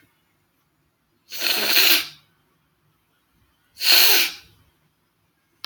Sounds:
Sniff